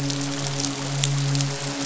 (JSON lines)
{"label": "biophony, midshipman", "recorder": "SoundTrap 500"}